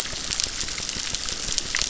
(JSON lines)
{"label": "biophony, crackle", "recorder": "SoundTrap 600"}